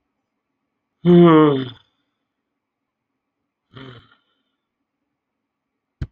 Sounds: Sigh